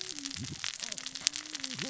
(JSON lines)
{"label": "biophony, cascading saw", "recorder": "SoundTrap 600 or HydroMoth"}